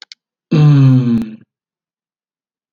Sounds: Sigh